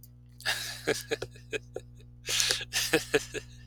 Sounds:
Laughter